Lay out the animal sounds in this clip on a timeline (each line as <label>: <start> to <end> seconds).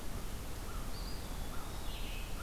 Red-eyed Vireo (Vireo olivaceus): 0.0 to 2.4 seconds
American Crow (Corvus brachyrhynchos): 0.6 to 2.4 seconds
Eastern Wood-Pewee (Contopus virens): 0.7 to 2.1 seconds